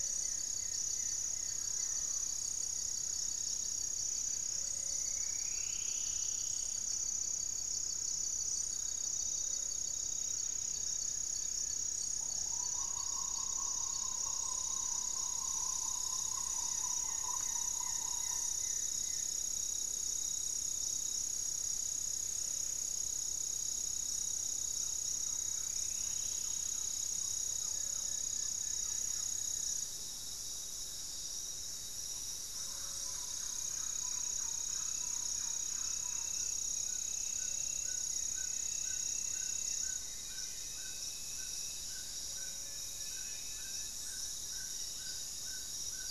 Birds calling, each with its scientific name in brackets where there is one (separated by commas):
Plain-winged Antshrike (Thamnophilus schistaceus), unidentified bird, Amazonian Trogon (Trogon ramonianus), Thrush-like Wren (Campylorhynchus turdinus), Green Ibis (Mesembrinibis cayennensis), Mealy Parrot (Amazona farinosa), Goeldi's Antbird (Akletos goeldii), Buff-breasted Wren (Cantorchilus leucotis), Black-faced Antthrush (Formicarius analis), Gray-fronted Dove (Leptotila rufaxilla), Paradise Tanager (Tangara chilensis), Striped Woodcreeper (Xiphorhynchus obsoletus)